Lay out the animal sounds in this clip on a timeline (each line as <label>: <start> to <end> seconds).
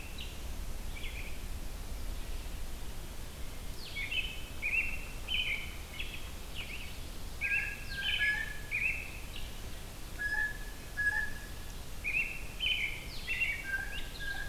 Blue-headed Vireo (Vireo solitarius): 0.0 to 14.5 seconds
American Robin (Turdus migratorius): 3.8 to 6.2 seconds
Blue Jay (Cyanocitta cristata): 7.3 to 8.7 seconds
American Robin (Turdus migratorius): 7.3 to 9.6 seconds
Blue Jay (Cyanocitta cristata): 10.1 to 11.6 seconds
American Robin (Turdus migratorius): 11.9 to 14.5 seconds
Blue Jay (Cyanocitta cristata): 13.6 to 14.5 seconds